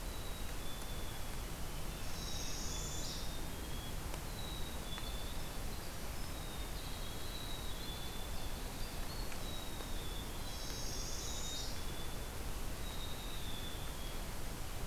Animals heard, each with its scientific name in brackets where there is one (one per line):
Black-capped Chickadee (Poecile atricapillus)
Blue Jay (Cyanocitta cristata)
Winter Wren (Troglodytes hiemalis)
Northern Parula (Setophaga americana)